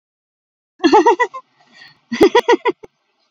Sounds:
Laughter